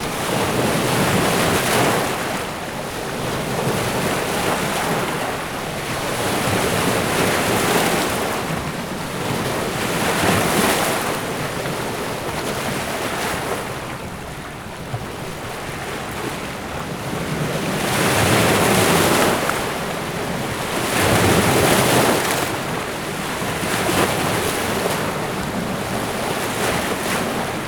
What is moving?
water